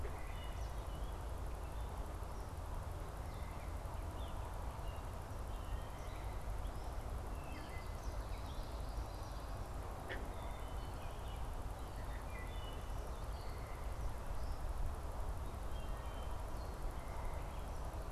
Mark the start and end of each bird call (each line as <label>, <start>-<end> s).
Wood Thrush (Hylocichla mustelina), 0.0-12.8 s
Eastern Kingbird (Tyrannus tyrannus), 0.5-0.9 s
Eastern Kingbird (Tyrannus tyrannus), 7.7-9.5 s
Wood Thrush (Hylocichla mustelina), 13.2-17.7 s